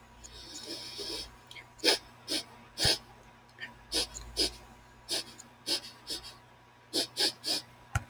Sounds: Sniff